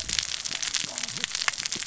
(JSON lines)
{"label": "biophony, cascading saw", "recorder": "SoundTrap 600 or HydroMoth"}